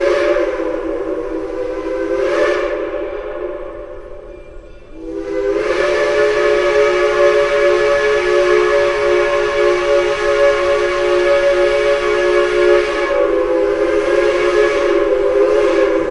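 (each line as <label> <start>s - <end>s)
A train whistle sounds. 0.0s - 4.4s
A train whistle sounds. 5.2s - 16.1s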